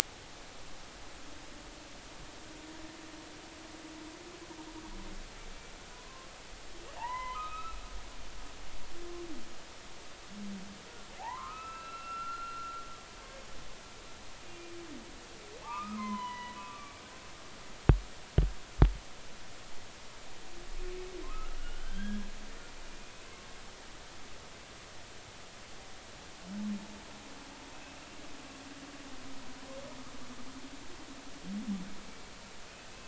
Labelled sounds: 5.9	7.8	humpback whale, 0.80 to 3.1 kHz
11.2	12.7	humpback whale, 0.80 to 4.1 kHz
15.6	17.0	humpback whale, 0.80 to 3.1 kHz
21.2	23.1	humpback whale, 0.99 to 3.4 kHz
28.0	28.2	humpback whale, 2.7 to 2.8 kHz

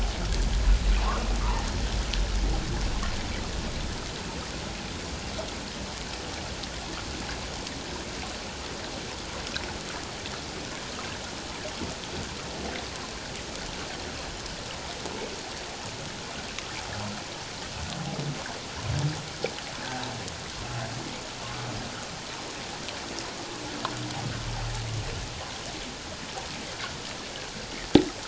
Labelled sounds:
1.0	1.7	humpback whale, 0.78 to 1.5 kHz

